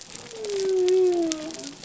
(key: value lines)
label: biophony
recorder: SoundTrap 300